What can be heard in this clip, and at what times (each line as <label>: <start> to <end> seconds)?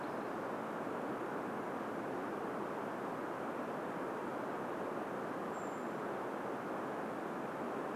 Brown Creeper call: 4 to 6 seconds